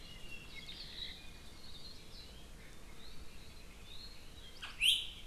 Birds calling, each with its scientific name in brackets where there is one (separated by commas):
Apapane (Himatione sanguinea)